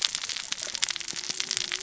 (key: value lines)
label: biophony, cascading saw
recorder: SoundTrap 600 or HydroMoth